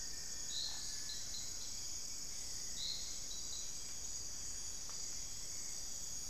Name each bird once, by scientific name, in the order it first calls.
Formicarius rufifrons, Crypturellus cinereus, Turdus hauxwelli